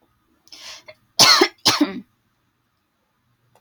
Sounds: Cough